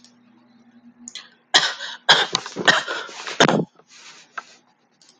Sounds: Cough